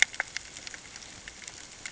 {"label": "ambient", "recorder": "HydroMoth"}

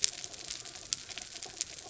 {"label": "anthrophony, mechanical", "recorder": "SoundTrap 300"}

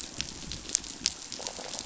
{"label": "biophony", "recorder": "SoundTrap 500"}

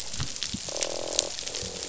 {"label": "biophony, croak", "recorder": "SoundTrap 500"}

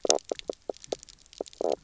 {"label": "biophony, knock croak", "recorder": "SoundTrap 300"}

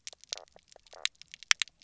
{"label": "biophony, knock croak", "recorder": "SoundTrap 300"}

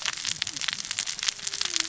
{"label": "biophony, cascading saw", "recorder": "SoundTrap 600 or HydroMoth"}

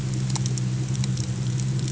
{"label": "anthrophony, boat engine", "recorder": "HydroMoth"}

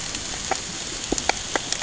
{"label": "ambient", "recorder": "HydroMoth"}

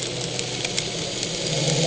{"label": "anthrophony, boat engine", "recorder": "HydroMoth"}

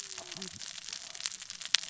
{"label": "biophony, cascading saw", "recorder": "SoundTrap 600 or HydroMoth"}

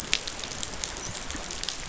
{"label": "biophony, dolphin", "recorder": "SoundTrap 500"}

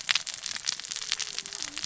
{"label": "biophony, cascading saw", "recorder": "SoundTrap 600 or HydroMoth"}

